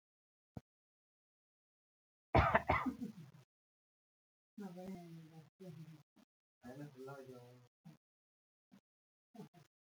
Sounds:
Cough